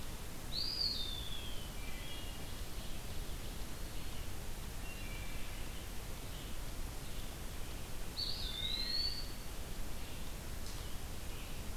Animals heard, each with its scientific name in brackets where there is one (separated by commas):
Ovenbird (Seiurus aurocapilla), Red-eyed Vireo (Vireo olivaceus), Eastern Wood-Pewee (Contopus virens), Eastern Chipmunk (Tamias striatus), Wood Thrush (Hylocichla mustelina)